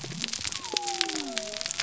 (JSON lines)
{"label": "biophony", "recorder": "SoundTrap 300"}